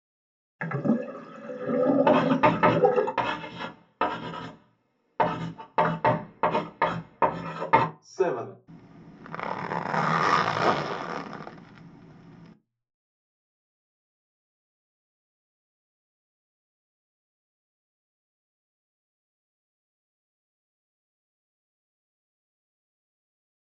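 At the start, you can hear a sink filling or washing. While that goes on, at 2 seconds, writing is audible. Then, at 8 seconds, someone says "seven". Finally, at 9 seconds, the sound of a zipper is heard.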